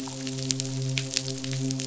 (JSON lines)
{"label": "biophony, midshipman", "recorder": "SoundTrap 500"}